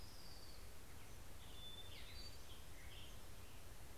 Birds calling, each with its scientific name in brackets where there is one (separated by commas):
Black-headed Grosbeak (Pheucticus melanocephalus), Hermit Thrush (Catharus guttatus), Pacific-slope Flycatcher (Empidonax difficilis), Orange-crowned Warbler (Leiothlypis celata)